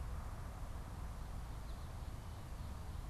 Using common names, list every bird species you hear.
American Goldfinch